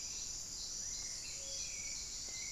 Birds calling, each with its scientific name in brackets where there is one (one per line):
White-rumped Sirystes (Sirystes albocinereus)
Paradise Tanager (Tangara chilensis)
unidentified bird
Buff-throated Saltator (Saltator maximus)